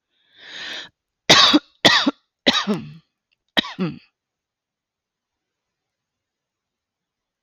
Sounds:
Cough